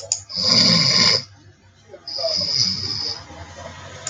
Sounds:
Sneeze